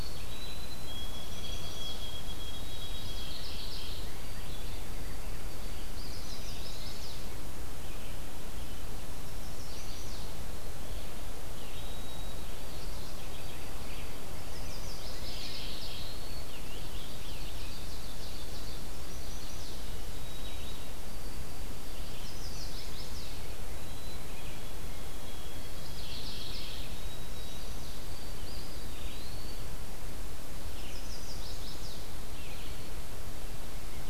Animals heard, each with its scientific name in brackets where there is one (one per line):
Scarlet Tanager (Piranga olivacea)
Ovenbird (Seiurus aurocapilla)
White-throated Sparrow (Zonotrichia albicollis)
Mourning Warbler (Geothlypis philadelphia)
Red-eyed Vireo (Vireo olivaceus)
Chestnut-sided Warbler (Setophaga pensylvanica)
Eastern Wood-Pewee (Contopus virens)